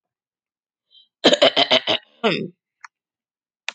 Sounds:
Throat clearing